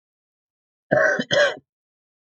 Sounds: Sigh